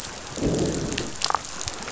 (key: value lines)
label: biophony, growl
recorder: SoundTrap 500

label: biophony, damselfish
recorder: SoundTrap 500